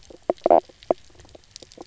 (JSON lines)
{"label": "biophony, knock croak", "recorder": "SoundTrap 300"}